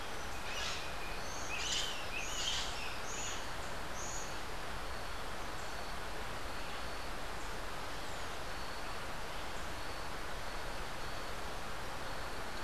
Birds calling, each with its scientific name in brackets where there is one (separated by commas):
Buff-throated Saltator (Saltator maximus), Crimson-fronted Parakeet (Psittacara finschi)